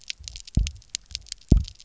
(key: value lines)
label: biophony, double pulse
recorder: SoundTrap 300